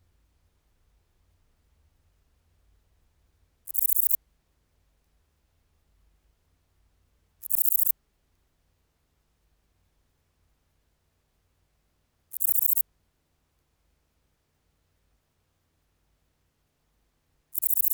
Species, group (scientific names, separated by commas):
Antaxius difformis, Orthoptera